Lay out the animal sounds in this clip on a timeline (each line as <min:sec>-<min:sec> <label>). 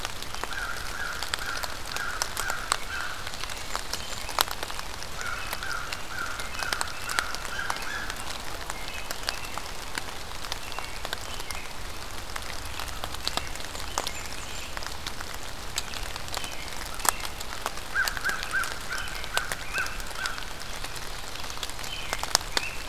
0:00.3-0:03.3 American Crow (Corvus brachyrhynchos)
0:02.7-0:04.9 American Robin (Turdus migratorius)
0:03.1-0:04.4 Blackburnian Warbler (Setophaga fusca)
0:05.1-0:09.2 American Crow (Corvus brachyrhynchos)
0:05.2-0:07.9 American Robin (Turdus migratorius)
0:08.7-0:09.7 American Robin (Turdus migratorius)
0:10.5-0:11.8 American Robin (Turdus migratorius)
0:12.4-0:14.7 American Robin (Turdus migratorius)
0:13.5-0:14.8 Blackburnian Warbler (Setophaga fusca)
0:15.8-0:17.4 American Robin (Turdus migratorius)
0:17.8-0:20.4 American Crow (Corvus brachyrhynchos)
0:18.1-0:20.4 American Robin (Turdus migratorius)
0:20.4-0:22.2 Ovenbird (Seiurus aurocapilla)
0:21.6-0:22.8 American Crow (Corvus brachyrhynchos)
0:21.7-0:22.8 American Robin (Turdus migratorius)